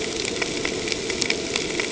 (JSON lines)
{"label": "ambient", "recorder": "HydroMoth"}